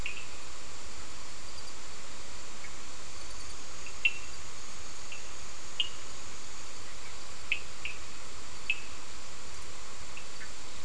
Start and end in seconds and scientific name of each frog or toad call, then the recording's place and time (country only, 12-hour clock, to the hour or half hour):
0.0	0.3	Sphaenorhynchus surdus
3.8	4.2	Sphaenorhynchus surdus
5.8	6.0	Sphaenorhynchus surdus
7.5	8.8	Sphaenorhynchus surdus
Brazil, ~9pm